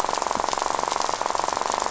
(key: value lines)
label: biophony, rattle
recorder: SoundTrap 500